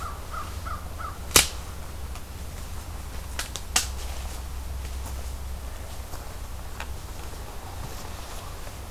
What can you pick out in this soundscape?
American Crow